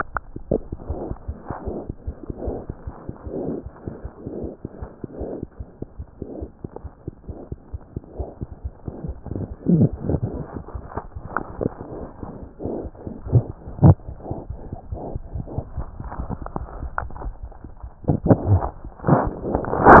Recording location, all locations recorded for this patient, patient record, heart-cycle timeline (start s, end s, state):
pulmonary valve (PV)
aortic valve (AV)+pulmonary valve (PV)+tricuspid valve (TV)+mitral valve (MV)
#Age: Infant
#Sex: Female
#Height: 70.0 cm
#Weight: 9.3 kg
#Pregnancy status: False
#Murmur: Absent
#Murmur locations: nan
#Most audible location: nan
#Systolic murmur timing: nan
#Systolic murmur shape: nan
#Systolic murmur grading: nan
#Systolic murmur pitch: nan
#Systolic murmur quality: nan
#Diastolic murmur timing: nan
#Diastolic murmur shape: nan
#Diastolic murmur grading: nan
#Diastolic murmur pitch: nan
#Diastolic murmur quality: nan
#Outcome: Abnormal
#Campaign: 2015 screening campaign
0.00	4.70	unannotated
4.70	4.80	systole
4.80	4.87	S2
4.87	5.03	diastole
5.03	5.07	S1
5.07	5.20	systole
5.20	5.24	S2
5.24	5.41	diastole
5.41	5.45	S1
5.45	5.59	systole
5.59	5.63	S2
5.63	5.80	diastole
5.80	5.85	S1
5.85	5.98	systole
5.98	6.03	S2
6.03	6.20	diastole
6.20	6.25	S1
6.25	6.40	systole
6.40	6.46	S2
6.46	6.63	diastole
6.63	6.67	S1
6.67	6.84	systole
6.84	6.88	S2
6.88	7.06	diastole
7.06	7.11	S1
7.11	7.27	systole
7.27	7.33	S2
7.33	7.50	diastole
7.50	7.56	S1
7.56	7.72	systole
7.72	7.77	S2
7.77	7.95	diastole
7.95	8.00	S1
8.00	8.19	systole
8.19	8.24	S2
8.24	8.40	diastole
8.40	8.45	S1
8.45	8.63	systole
8.63	20.00	unannotated